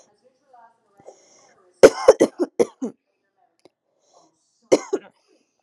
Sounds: Cough